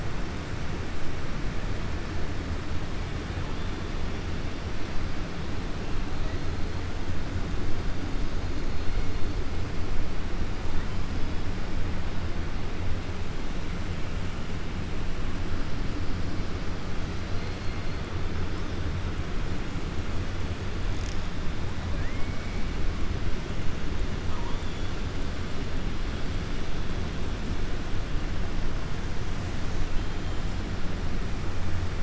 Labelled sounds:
17.2	18.0	killer whale, 3.5 to 4.8 kHz

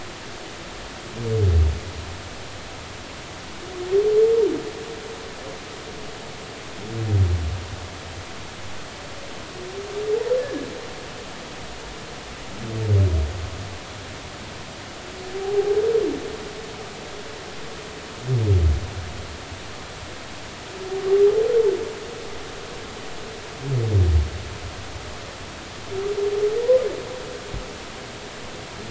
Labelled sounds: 10.4	10.7	humpback whale, 1.6 to 1.8 kHz
16.4	16.8	humpback whale, 0.80 to 0.86 kHz

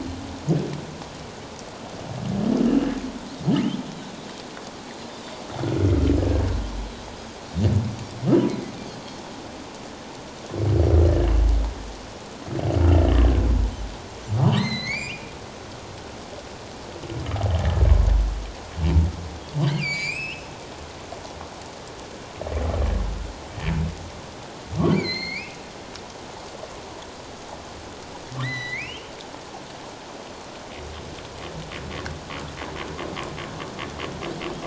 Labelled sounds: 2.7	2.9	humpback whale, 2.7 to 3.0 kHz
14.6	15.3	humpback whale, 1.8 to 7.4 kHz
19.6	20.5	humpback whale, 2.0 to 7.9 kHz
24.9	25.6	humpback whale, 2.0 to 6.6 kHz
28.4	29.2	humpback whale, 1.8 to 4.1 kHz

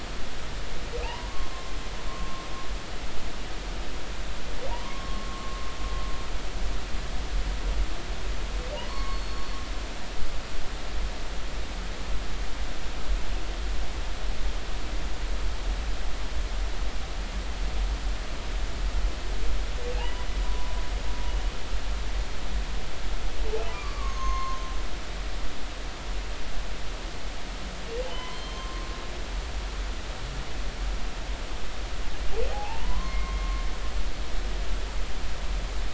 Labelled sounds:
1.0	1.5	humpback whale, 0.86 to 1.2 kHz
2.1	2.4	humpback whale, 1.0 to 1.2 kHz
4.7	5.6	humpback whale, 0.86 to 1.2 kHz
8.9	9.5	humpback whale, 0.93 to 4.4 kHz
19.9	20.8	humpback whale, 0.80 to 3.0 kHz
23.7	24.6	humpback whale, 0.99 to 6.6 kHz
28.1	28.9	humpback whale, 0.96 to 4.3 kHz
32.5	33.6	humpback whale, 0.80 to 2.2 kHz

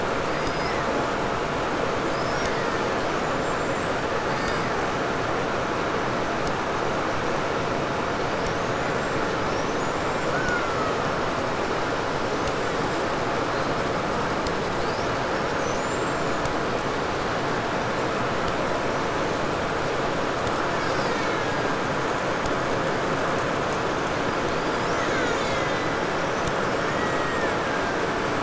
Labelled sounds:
0.1	1.2	killer whale, 1.5 to 6.1 kHz
2.0	4.0	killer whale, 1.1 to 8.0 kHz
4.2	6.2	killer whale, Bigg's (transient), call T07, 1.1 to 8.0 kHz
8.1	10.3	killer whale, 3.8 to 7.8 kHz
10.2	11.4	killer whale, Bigg's (transient), call T08, 0.92 to 7.2 kHz
14.7	16.7	killer whale, 3.5 to 7.9 kHz
18.6	19.6	killer whale, 5.3 to 6.5 kHz
20.1	22.1	killer whale, Bigg's (transient), call T03, 1.1 to 8.0 kHz
23.9	26.1	killer whale, Bigg's (transient), call T03, 0.97 to 8.0 kHz
26.0	27.6	killer whale, 5.0 to 7.7 kHz
26.7	28.4	killer whale, Bigg's (transient), 1.1 to 2.2 kHz

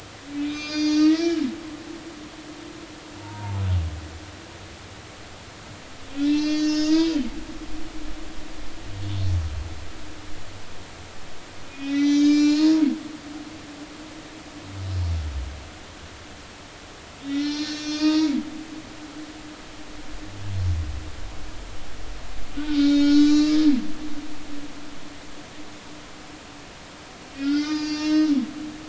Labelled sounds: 1.1	1.5	humpback whale, 1.6 to 5.5 kHz
3.2	3.6	humpback whale, 0.83 to 0.99 kHz
6.2	7.1	humpback whale, 1.5 to 6.9 kHz
11.7	12.8	humpback whale, 0.90 to 7.5 kHz
17.2	18.3	humpback whale, 1.2 to 6.0 kHz
19.0	19.3	humpback whale, 0.90 to 0.99 kHz
22.6	23.6	humpback whale, 1.2 to 6.9 kHz
24.0	24.4	humpback whale, 1.4 to 1.5 kHz
27.3	28.3	humpback whale, 1.2 to 7.1 kHz

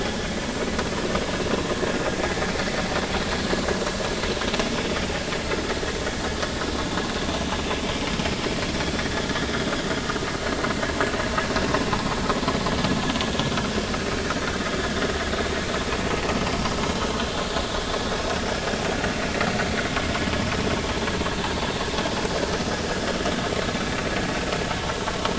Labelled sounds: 6.8	7.0	vessel noise, 3.4 to 3.6 kHz
11.9	12.2	vessel noise, 0.80 to 1.1 kHz

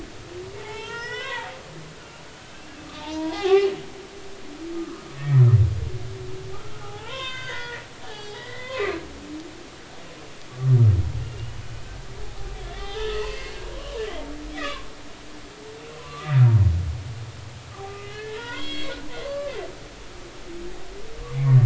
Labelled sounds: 0.5	1.5	humpback whale, 0.80 to 6.1 kHz
2.5	3.7	humpback whale, 0.80 to 3.0 kHz
4.8	5.4	humpback whale, 1.0 to 2.0 kHz
6.8	9.0	humpback whale, 0.80 to 6.3 kHz
11.2	11.6	humpback whale, 2.8 to 3.0 kHz
12.5	14.9	humpback whale, 0.80 to 3.6 kHz
16.0	16.3	humpback whale, 0.96 to 1.2 kHz
18.0	19.0	humpback whale, 0.90 to 3.4 kHz
19.2	19.5	humpback whale, 1.0 to 1.2 kHz
21.3	21.6	humpback whale, 2.0 to 2.4 kHz

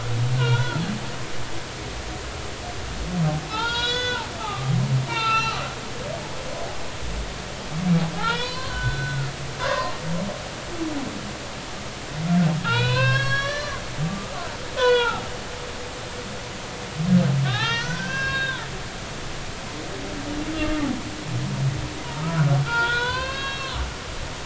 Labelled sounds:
0.4	0.8	humpback whale, 1.3 to 3.5 kHz
3.5	4.7	humpback whale, 0.80 to 7.0 kHz
5.1	5.6	humpback whale, 0.83 to 4.2 kHz
8.2	9.3	humpback whale, 0.80 to 5.6 kHz
9.6	9.9	humpback whale, 0.96 to 1.2 kHz
12.6	14.4	humpback whale, 0.83 to 5.9 kHz
14.8	15.3	humpback whale, 0.80 to 4.1 kHz
17.4	18.7	humpback whale, 0.80 to 6.1 kHz
20.5	20.9	humpback whale, 1.1 to 1.3 kHz
22.2	23.8	humpback whale, 0.86 to 4.8 kHz

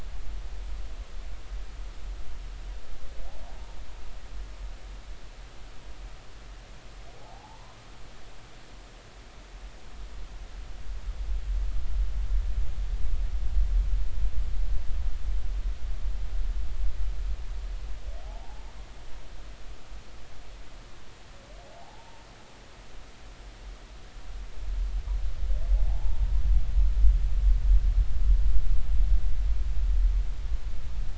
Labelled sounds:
7.2	7.8	humpback whale, 0.80 to 1.1 kHz
18.2	18.7	humpback whale, 0.80 to 0.99 kHz
21.6	22.2	humpback whale, 0.80 to 0.96 kHz
25.9	26.3	humpback whale, 0.80 to 0.99 kHz

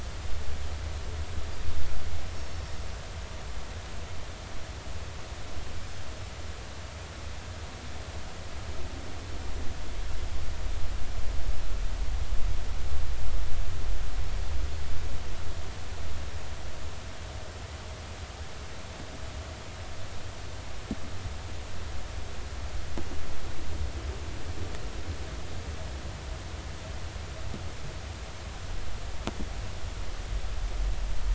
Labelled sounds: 2.3	2.6	Pacific white-sided dolphin, 5.4 to 5.6 kHz

